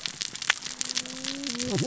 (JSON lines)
{"label": "biophony, cascading saw", "recorder": "SoundTrap 600 or HydroMoth"}